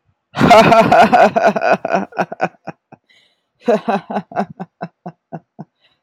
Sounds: Laughter